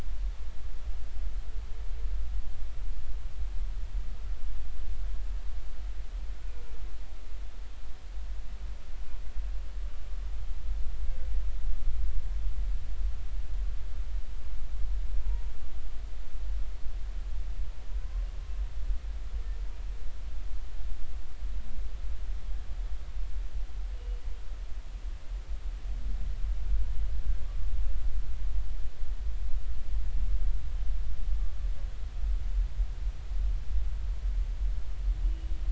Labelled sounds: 15.2	15.5	humpback whale, 0.86 to 0.99 kHz
23.9	24.3	humpback whale, 2.8 to 3.0 kHz

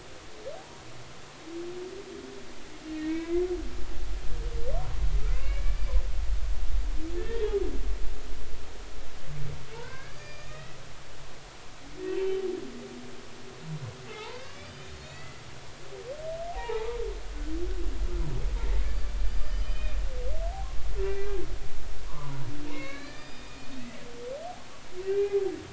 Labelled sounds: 0.6	0.8	humpback whale, 0.80 to 0.99 kHz
2.9	3.4	humpback whale, 1.5 to 2.3 kHz
5.3	5.8	humpback whale, 2.0 to 2.9 kHz
7.2	7.4	humpback whale, 1.7 to 1.9 kHz
9.7	10.8	humpback whale, 0.86 to 4.9 kHz
12.1	12.4	humpback whale, 2.6 to 3.1 kHz
14.1	15.4	humpback whale, 0.80 to 4.9 kHz
16.6	17.0	humpback whale, 0.80 to 1.0 kHz
19.3	20.0	humpback whale, 2.3 to 5.1 kHz
21.0	21.4	humpback whale, 1.5 to 2.5 kHz
22.1	22.4	humpback whale, 0.93 to 1.2 kHz
22.7	24.0	humpback whale, 0.90 to 5.0 kHz
25.0	25.4	humpback whale, 1.5 to 2.8 kHz

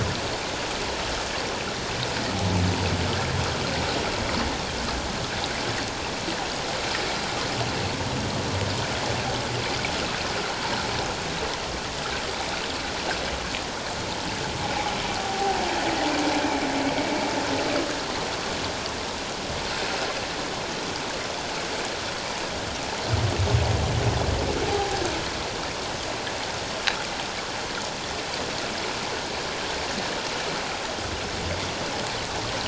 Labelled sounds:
15.2	15.6	humpback whale, 0.78 to 0.84 kHz
24.7	25.0	humpback whale, 0.78 to 0.88 kHz

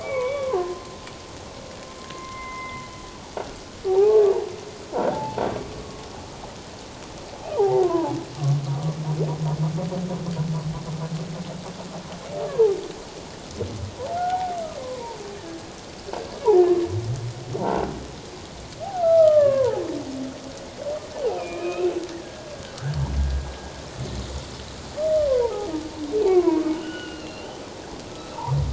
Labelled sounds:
0.0	0.9	humpback whale, 0.78 to 3.5 kHz
2.1	2.8	humpback whale, 0.97 to 2.2 kHz
3.9	4.3	humpback whale, 0.78 to 1.2 kHz
4.9	5.2	croaking sound likely from a nearby submerged object, 1.3 to 1.6 kHz
5.1	5.4	humpback whale, 0.78 to 0.94 kHz
5.8	6.0	humpback whale, 1.0 to 1.1 kHz
7.6	8.2	humpback whale, 0.78 to 1.1 kHz
12.4	12.8	humpback whale, 0.78 to 1.2 kHz
14.2	15.7	humpback whale, 0.78 to 1.8 kHz
17.6	17.9	croaking sound likely from a nearby submerged object, 1.3 to 1.6 kHz
18.9	19.8	humpback whale, 0.78 to 1.9 kHz
21.3	22.5	humpback whale, 1.2 to 2.7 kHz
25.3	25.7	humpback whale, 0.78 to 1.1 kHz
26.3	27.5	humpback whale, 0.88 to 4.3 kHz
28.1	28.4	humpback whale, 1.2 to 1.4 kHz

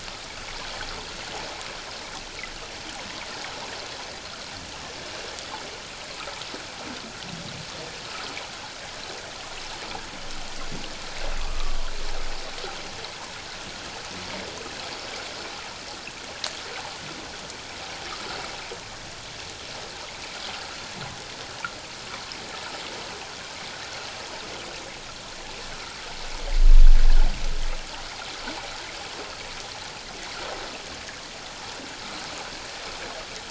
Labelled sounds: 11.4	11.8	humpback whale, 0.97 to 1.3 kHz

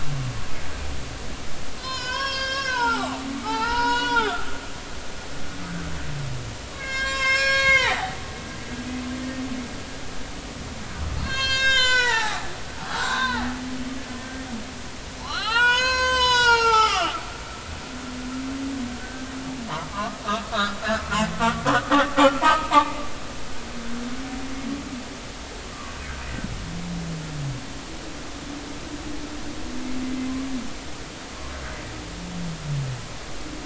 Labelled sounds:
1.8	4.4	humpback whale, 0.80 to 7.0 kHz
6.7	8.7	humpback whale, 0.80 to 7.6 kHz
11.2	12.5	humpback whale, 0.80 to 8.0 kHz
12.9	13.5	humpback whale, 0.80 to 4.0 kHz
15.2	17.2	humpback whale, 0.80 to 8.0 kHz
19.0	19.2	humpback whale, 1.5 to 1.6 kHz
19.9	21.6	humpback whale, 0.96 to 1.6 kHz
22.4	23.0	humpback whale, 0.80 to 1.3 kHz

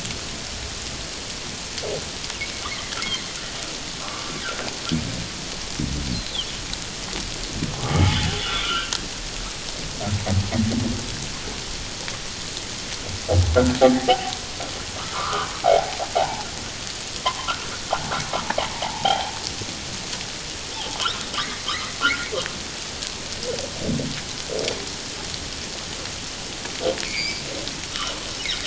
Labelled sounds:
4.0	4.3	humpback whale, 1.0 to 1.2 kHz
7.8	8.9	humpback whale, 0.78 to 3.6 kHz
13.8	14.3	humpback whale, 0.78 to 0.91 kHz
15.0	16.5	humpback whale, 0.78 to 1.6 kHz
17.2	17.7	humpback whale, 0.84 to 1.5 kHz
18.7	19.3	humpback whale, 0.78 to 1.0 kHz
21.4	21.7	humpback whale, 1.8 to 2.2 kHz
22.0	22.3	humpback whale, 1.3 to 1.6 kHz
27.0	27.4	humpback whale, 2.0 to 2.5 kHz

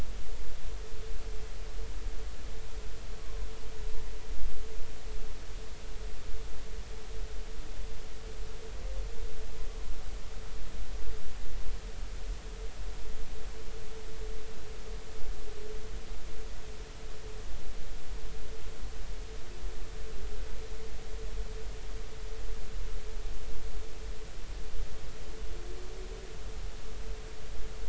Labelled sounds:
3.2	3.5	humpback whale, 0.96 to 1.2 kHz

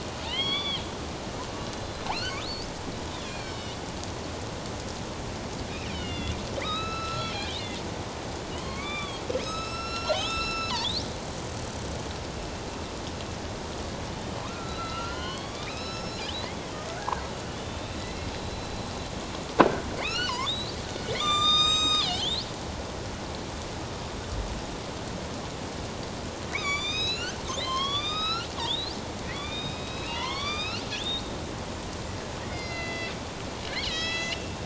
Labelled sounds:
1.6	2.4	killer whale, northern resident, A clan, AB subclan, 2.2 to 4.1 kHz
3.1	3.8	killer whale, northern resident, A clan, AB subclan, 2.2 to 5.4 kHz
5.9	7.8	killer whale, northern resident, A clan, AB subclan, 1.1 to 5.3 kHz
8.6	10.9	killer whale, northern resident, A clan, AB subclan, 0.84 to 8.0 kHz
14.4	16.2	killer whale, northern resident, A clan, AB subclan, 0.94 to 5.5 kHz
17.0	18.7	killer whale, northern resident, A clan, AB subclan, 1.4 to 4.1 kHz
20.0	22.4	killer whale, northern resident, A clan, AB subclan, 1.1 to 7.6 kHz
26.5	31.3	killer whale, northern resident, A clan, AB subclan, 0.88 to 7.8 kHz
32.5	33.1	killer whale, northern resident, A clan, AB subclan, 1.9 to 5.0 kHz
33.7	34.5	killer whale, northern resident, A clan, AB subclan, 1.2 to 7.3 kHz

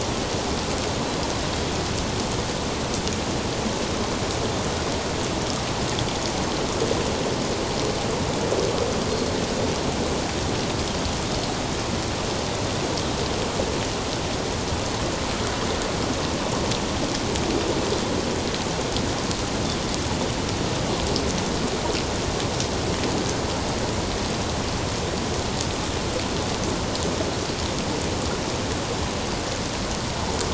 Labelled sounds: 9.1	9.4	Pacific white-sided dolphin, 4.2 to 4.4 kHz

